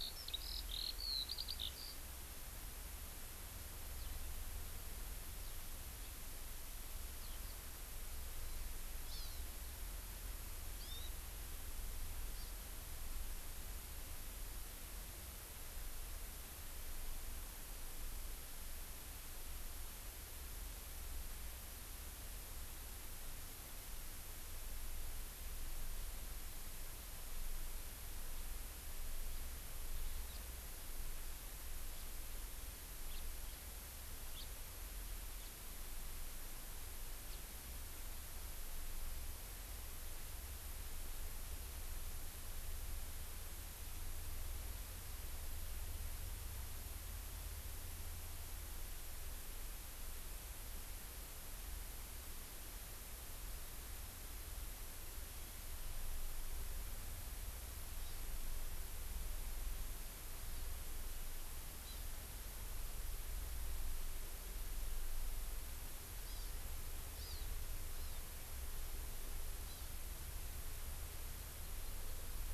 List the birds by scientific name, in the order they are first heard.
Alauda arvensis, Chlorodrepanis virens, Haemorhous mexicanus